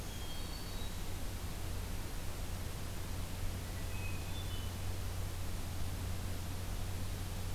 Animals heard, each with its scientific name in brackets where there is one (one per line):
Hermit Thrush (Catharus guttatus)
Black-throated Green Warbler (Setophaga virens)